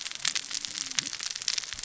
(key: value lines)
label: biophony, cascading saw
recorder: SoundTrap 600 or HydroMoth